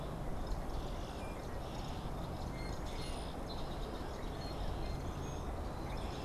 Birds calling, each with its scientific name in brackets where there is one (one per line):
unidentified bird